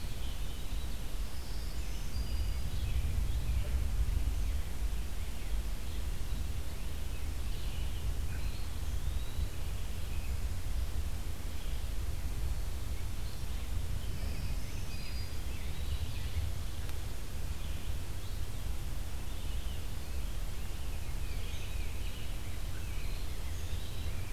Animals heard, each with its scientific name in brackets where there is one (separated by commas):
Rose-breasted Grosbeak (Pheucticus ludovicianus), Tufted Titmouse (Baeolophus bicolor), Black-throated Green Warbler (Setophaga virens), Eastern Wood-Pewee (Contopus virens), Red-eyed Vireo (Vireo olivaceus)